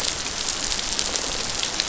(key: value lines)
label: biophony
recorder: SoundTrap 500